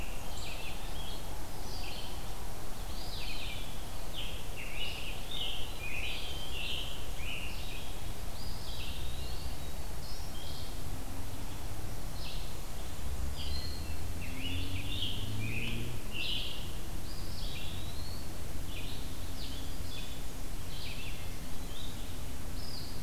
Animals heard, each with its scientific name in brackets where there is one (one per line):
Scarlet Tanager (Piranga olivacea)
Eastern Wood-Pewee (Contopus virens)
Broad-winged Hawk (Buteo platypterus)
Red-eyed Vireo (Vireo olivaceus)